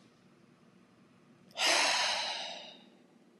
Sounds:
Sigh